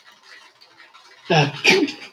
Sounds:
Sneeze